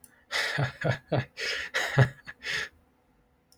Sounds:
Laughter